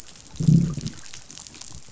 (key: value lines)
label: biophony, growl
recorder: SoundTrap 500